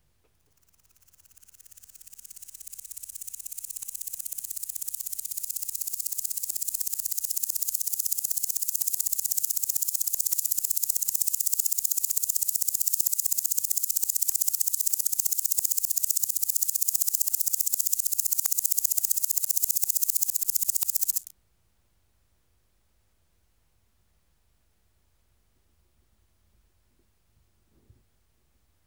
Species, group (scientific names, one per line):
Omocestus viridulus
Orthoptera